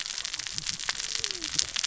{"label": "biophony, cascading saw", "recorder": "SoundTrap 600 or HydroMoth"}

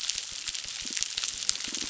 {"label": "biophony", "recorder": "SoundTrap 600"}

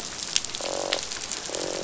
{"label": "biophony, croak", "recorder": "SoundTrap 500"}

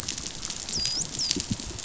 {"label": "biophony, dolphin", "recorder": "SoundTrap 500"}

